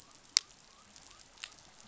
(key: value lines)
label: biophony
recorder: SoundTrap 500